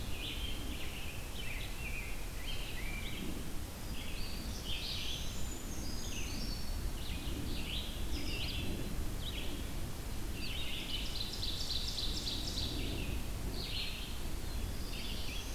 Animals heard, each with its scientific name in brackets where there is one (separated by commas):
Eastern Wood-Pewee (Contopus virens), Red-eyed Vireo (Vireo olivaceus), Brown Creeper (Certhia americana), Ovenbird (Seiurus aurocapilla), Rose-breasted Grosbeak (Pheucticus ludovicianus), Black-throated Blue Warbler (Setophaga caerulescens)